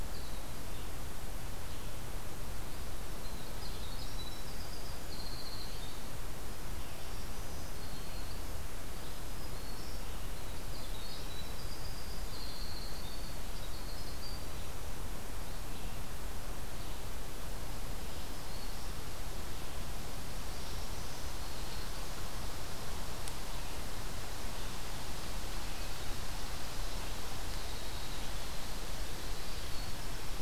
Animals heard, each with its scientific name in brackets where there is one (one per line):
Winter Wren (Troglodytes hiemalis)
Black-throated Green Warbler (Setophaga virens)
Red-eyed Vireo (Vireo olivaceus)